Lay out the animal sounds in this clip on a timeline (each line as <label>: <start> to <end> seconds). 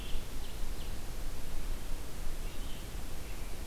Ovenbird (Seiurus aurocapilla): 0.0 to 1.0 seconds
Red-eyed Vireo (Vireo olivaceus): 0.0 to 3.7 seconds
American Robin (Turdus migratorius): 3.0 to 3.7 seconds